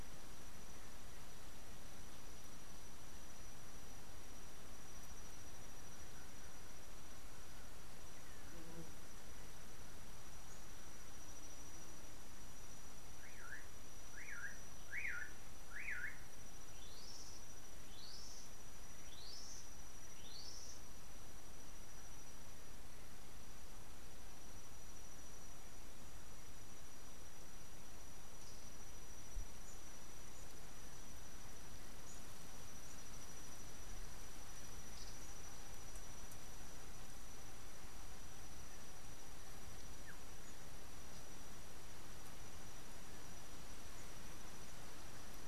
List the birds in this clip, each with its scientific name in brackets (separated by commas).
Hunter's Cisticola (Cisticola hunteri)